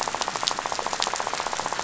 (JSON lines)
{"label": "biophony, rattle", "recorder": "SoundTrap 500"}